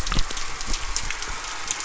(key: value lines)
label: anthrophony, boat engine
recorder: SoundTrap 300